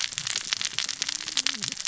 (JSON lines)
{"label": "biophony, cascading saw", "recorder": "SoundTrap 600 or HydroMoth"}